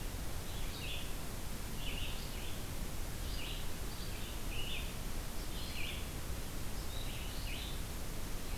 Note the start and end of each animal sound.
0.0s-2.7s: Red-eyed Vireo (Vireo olivaceus)
3.0s-8.6s: Red-eyed Vireo (Vireo olivaceus)

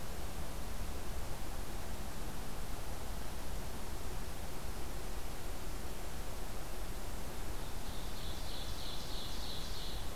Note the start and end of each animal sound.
7.5s-10.2s: Ovenbird (Seiurus aurocapilla)

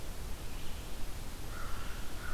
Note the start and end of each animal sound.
0.0s-2.3s: Red-eyed Vireo (Vireo olivaceus)
1.3s-2.3s: American Crow (Corvus brachyrhynchos)

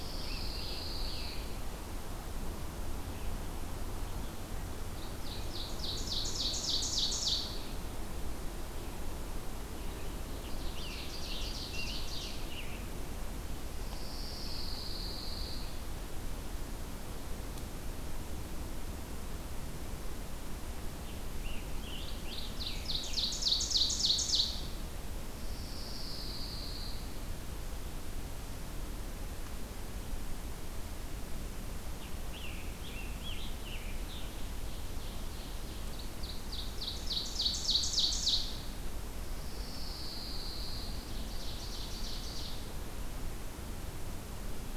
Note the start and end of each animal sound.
0.0s-1.0s: Scarlet Tanager (Piranga olivacea)
0.0s-1.6s: Pine Warbler (Setophaga pinus)
0.0s-5.3s: Red-eyed Vireo (Vireo olivaceus)
5.3s-8.0s: Ovenbird (Seiurus aurocapilla)
9.9s-12.9s: Scarlet Tanager (Piranga olivacea)
10.2s-12.8s: Ovenbird (Seiurus aurocapilla)
13.8s-15.8s: Pine Warbler (Setophaga pinus)
20.7s-22.9s: Scarlet Tanager (Piranga olivacea)
22.5s-24.8s: Ovenbird (Seiurus aurocapilla)
25.3s-27.2s: Pine Warbler (Setophaga pinus)
31.6s-34.4s: Scarlet Tanager (Piranga olivacea)
34.0s-38.5s: Ovenbird (Seiurus aurocapilla)
39.3s-41.0s: Pine Warbler (Setophaga pinus)
41.0s-42.8s: Ovenbird (Seiurus aurocapilla)

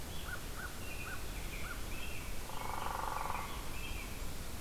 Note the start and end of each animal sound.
0.0s-2.1s: American Crow (Corvus brachyrhynchos)
0.0s-4.3s: American Robin (Turdus migratorius)
2.3s-4.4s: Hairy Woodpecker (Dryobates villosus)

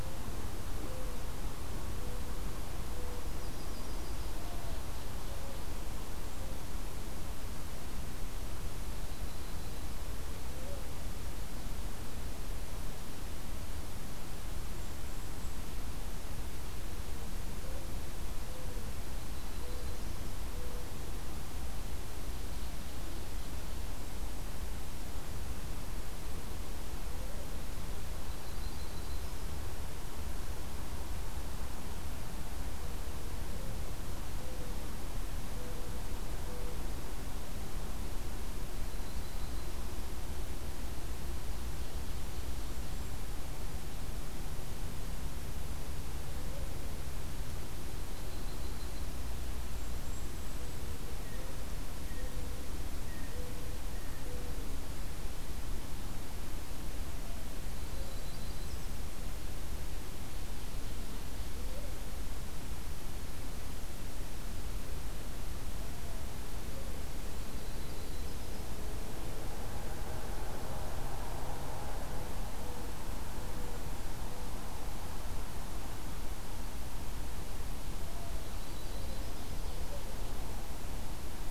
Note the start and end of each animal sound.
0.0s-3.3s: Mourning Dove (Zenaida macroura)
3.1s-4.4s: Yellow-rumped Warbler (Setophaga coronata)
4.0s-5.9s: Ovenbird (Seiurus aurocapilla)
4.5s-6.8s: Mourning Dove (Zenaida macroura)
8.8s-9.9s: Yellow-rumped Warbler (Setophaga coronata)
10.4s-10.9s: Mourning Dove (Zenaida macroura)
14.5s-15.6s: Golden-crowned Kinglet (Regulus satrapa)
16.8s-21.0s: Mourning Dove (Zenaida macroura)
19.1s-20.3s: Yellow-rumped Warbler (Setophaga coronata)
23.8s-24.6s: Golden-crowned Kinglet (Regulus satrapa)
27.1s-27.6s: Mourning Dove (Zenaida macroura)
28.2s-29.6s: Yellow-rumped Warbler (Setophaga coronata)
38.7s-39.8s: Yellow-rumped Warbler (Setophaga coronata)
41.5s-43.1s: Ovenbird (Seiurus aurocapilla)
42.3s-43.3s: Golden-crowned Kinglet (Regulus satrapa)
48.0s-49.2s: Yellow-rumped Warbler (Setophaga coronata)
49.6s-50.8s: Golden-crowned Kinglet (Regulus satrapa)
51.2s-54.2s: Blue Jay (Cyanocitta cristata)
51.2s-54.7s: Mourning Dove (Zenaida macroura)
57.7s-59.0s: Yellow-rumped Warbler (Setophaga coronata)
57.7s-59.0s: Golden-crowned Kinglet (Regulus satrapa)
57.8s-59.0s: Mourning Dove (Zenaida macroura)
67.4s-68.7s: Yellow-rumped Warbler (Setophaga coronata)
72.4s-73.8s: Golden-crowned Kinglet (Regulus satrapa)
78.2s-79.6s: Yellow-rumped Warbler (Setophaga coronata)

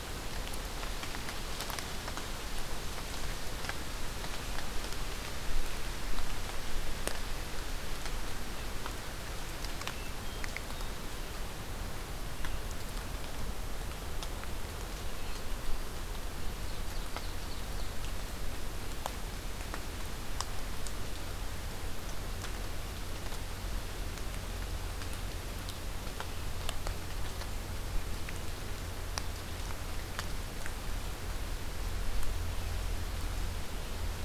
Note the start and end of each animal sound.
9.8s-11.0s: Hermit Thrush (Catharus guttatus)
16.5s-18.1s: Ovenbird (Seiurus aurocapilla)

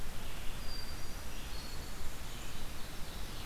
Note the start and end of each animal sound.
0.0s-3.5s: Red-eyed Vireo (Vireo olivaceus)
0.5s-1.9s: Hermit Thrush (Catharus guttatus)
1.7s-3.5s: Ovenbird (Seiurus aurocapilla)
1.8s-2.6s: Black-capped Chickadee (Poecile atricapillus)

